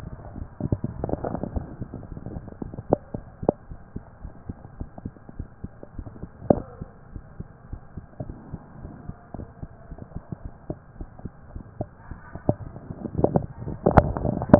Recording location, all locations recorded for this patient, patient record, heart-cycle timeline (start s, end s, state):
mitral valve (MV)
aortic valve (AV)+pulmonary valve (PV)+tricuspid valve (TV)+mitral valve (MV)
#Age: Child
#Sex: Male
#Height: 153.0 cm
#Weight: 79.9 kg
#Pregnancy status: False
#Murmur: Absent
#Murmur locations: nan
#Most audible location: nan
#Systolic murmur timing: nan
#Systolic murmur shape: nan
#Systolic murmur grading: nan
#Systolic murmur pitch: nan
#Systolic murmur quality: nan
#Diastolic murmur timing: nan
#Diastolic murmur shape: nan
#Diastolic murmur grading: nan
#Diastolic murmur pitch: nan
#Diastolic murmur quality: nan
#Outcome: Abnormal
#Campaign: 2015 screening campaign
0.00	3.67	unannotated
3.67	3.78	S1
3.78	3.94	systole
3.94	4.04	S2
4.04	4.21	diastole
4.21	4.32	S1
4.32	4.45	systole
4.45	4.58	S2
4.58	4.76	diastole
4.76	4.90	S1
4.90	5.02	systole
5.02	5.14	S2
5.14	5.34	diastole
5.34	5.48	S1
5.48	5.62	systole
5.62	5.72	S2
5.72	5.94	diastole
5.94	6.08	S1
6.08	6.20	systole
6.20	6.28	S2
6.28	6.46	diastole
6.46	6.62	S1
6.62	6.78	systole
6.78	6.90	S2
6.90	7.10	diastole
7.10	7.22	S1
7.22	7.36	systole
7.36	7.48	S2
7.48	7.68	diastole
7.68	7.82	S1
7.82	7.94	systole
7.94	8.04	S2
8.04	8.20	diastole
8.20	8.36	S1
8.36	8.50	systole
8.50	8.62	S2
8.62	8.80	diastole
8.80	8.90	S1
8.90	9.05	systole
9.05	9.16	S2
9.16	9.37	diastole
9.37	9.48	S1
9.48	9.60	systole
9.60	9.70	S2
9.70	9.86	diastole
9.86	9.98	S1
9.98	10.12	systole
10.12	10.22	S2
10.22	10.42	diastole
10.42	10.52	S1
10.52	10.66	systole
10.66	10.78	S2
10.78	10.98	diastole
10.98	11.10	S1
11.10	11.23	systole
11.23	11.32	S2
11.32	11.52	diastole
11.52	11.62	S1
11.62	11.76	systole
11.76	11.88	S2
11.88	12.08	diastole
12.08	12.18	S1
12.18	14.59	unannotated